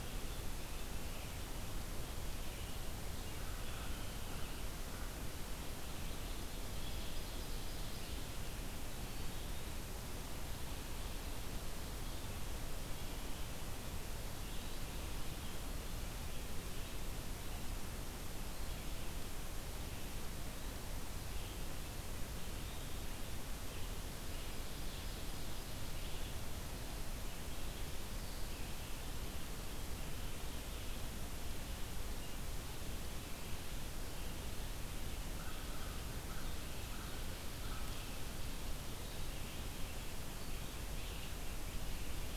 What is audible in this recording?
Red-eyed Vireo, American Crow, Ovenbird, Eastern Wood-Pewee